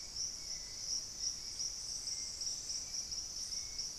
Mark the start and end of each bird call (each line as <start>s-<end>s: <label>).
0.0s-4.0s: Hauxwell's Thrush (Turdus hauxwelli)